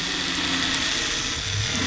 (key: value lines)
label: anthrophony, boat engine
recorder: SoundTrap 500